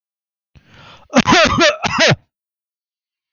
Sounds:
Cough